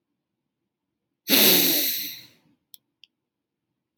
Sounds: Sniff